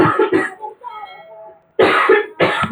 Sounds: Throat clearing